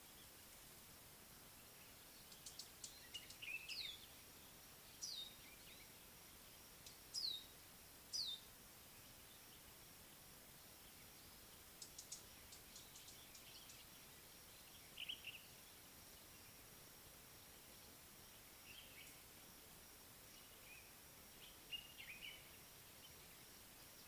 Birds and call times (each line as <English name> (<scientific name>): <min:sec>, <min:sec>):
Variable Sunbird (Cinnyris venustus): 0:02.7, 0:11.9
Common Bulbul (Pycnonotus barbatus): 0:03.4, 0:15.1, 0:22.0